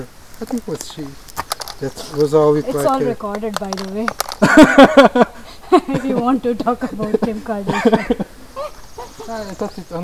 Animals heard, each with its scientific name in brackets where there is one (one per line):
Northern Parula (Setophaga americana)